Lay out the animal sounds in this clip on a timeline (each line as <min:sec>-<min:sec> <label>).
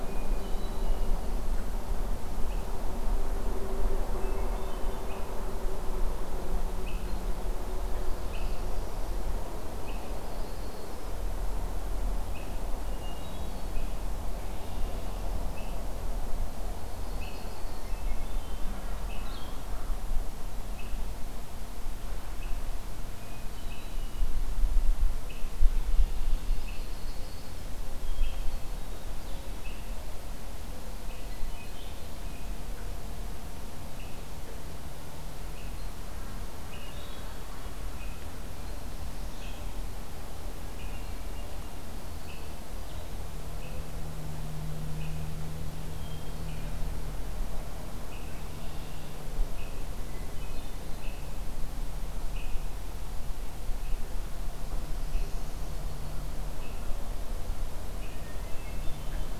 0:00.0-0:01.2 Hermit Thrush (Catharus guttatus)
0:04.1-0:05.1 Hermit Thrush (Catharus guttatus)
0:07.9-0:09.3 Northern Parula (Setophaga americana)
0:09.9-0:11.2 Yellow-rumped Warbler (Setophaga coronata)
0:12.8-0:13.9 Hermit Thrush (Catharus guttatus)
0:14.3-0:15.3 Red-winged Blackbird (Agelaius phoeniceus)
0:16.7-0:17.9 Yellow-rumped Warbler (Setophaga coronata)
0:17.8-0:18.8 Hermit Thrush (Catharus guttatus)
0:19.2-0:19.6 Blue-headed Vireo (Vireo solitarius)
0:23.1-0:24.3 Hermit Thrush (Catharus guttatus)
0:25.7-0:26.7 Red-winged Blackbird (Agelaius phoeniceus)
0:26.5-0:27.7 Yellow-rumped Warbler (Setophaga coronata)
0:28.2-0:29.4 Black-throated Green Warbler (Setophaga virens)
0:28.3-0:29.0 Hermit Thrush (Catharus guttatus)
0:31.2-0:32.2 Hermit Thrush (Catharus guttatus)
0:36.6-0:37.8 Hermit Thrush (Catharus guttatus)
0:40.8-0:41.7 Hermit Thrush (Catharus guttatus)
0:45.8-0:46.9 Hermit Thrush (Catharus guttatus)
0:48.2-0:49.2 Red-winged Blackbird (Agelaius phoeniceus)
0:50.0-0:51.1 Hermit Thrush (Catharus guttatus)
0:54.7-0:55.9 Northern Parula (Setophaga americana)
0:58.3-0:59.4 Hermit Thrush (Catharus guttatus)